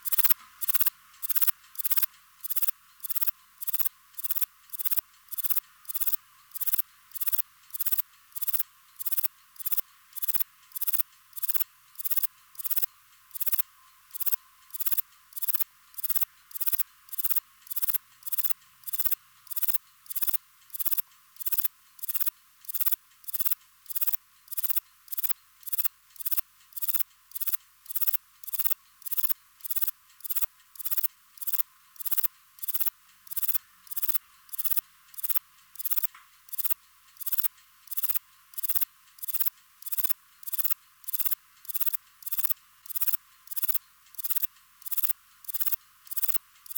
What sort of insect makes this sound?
orthopteran